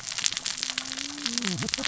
{"label": "biophony, cascading saw", "recorder": "SoundTrap 600 or HydroMoth"}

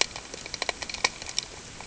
{"label": "ambient", "recorder": "HydroMoth"}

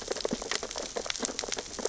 {"label": "biophony, sea urchins (Echinidae)", "recorder": "SoundTrap 600 or HydroMoth"}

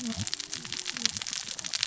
{"label": "biophony, cascading saw", "recorder": "SoundTrap 600 or HydroMoth"}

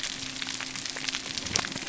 {"label": "biophony", "recorder": "SoundTrap 300"}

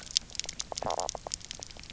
{"label": "biophony, knock croak", "recorder": "SoundTrap 300"}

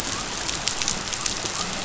{"label": "biophony", "recorder": "SoundTrap 500"}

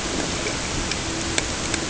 {"label": "ambient", "recorder": "HydroMoth"}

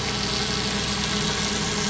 {"label": "biophony, dolphin", "recorder": "SoundTrap 500"}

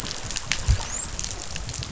{"label": "biophony, dolphin", "recorder": "SoundTrap 500"}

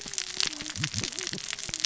{"label": "biophony, cascading saw", "recorder": "SoundTrap 600 or HydroMoth"}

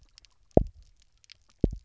{"label": "biophony, double pulse", "recorder": "SoundTrap 300"}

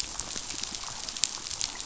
{"label": "biophony, damselfish", "recorder": "SoundTrap 500"}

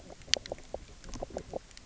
{"label": "biophony, knock croak", "recorder": "SoundTrap 300"}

